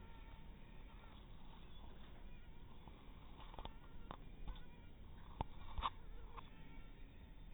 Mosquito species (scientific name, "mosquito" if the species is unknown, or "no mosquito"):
mosquito